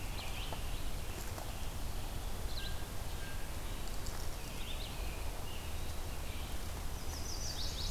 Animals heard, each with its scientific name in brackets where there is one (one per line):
Chestnut-sided Warbler (Setophaga pensylvanica)
Red-eyed Vireo (Vireo olivaceus)